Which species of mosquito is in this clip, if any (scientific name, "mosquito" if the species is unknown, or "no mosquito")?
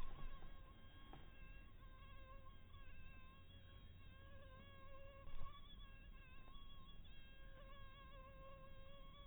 mosquito